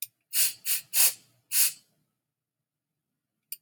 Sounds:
Sniff